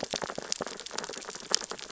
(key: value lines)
label: biophony, sea urchins (Echinidae)
recorder: SoundTrap 600 or HydroMoth